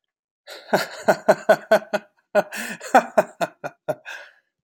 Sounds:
Laughter